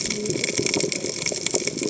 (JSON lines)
{"label": "biophony, cascading saw", "recorder": "HydroMoth"}